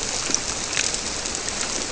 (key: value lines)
label: biophony
recorder: SoundTrap 300